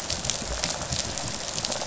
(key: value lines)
label: biophony, rattle response
recorder: SoundTrap 500